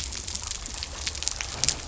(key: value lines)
label: biophony
recorder: SoundTrap 300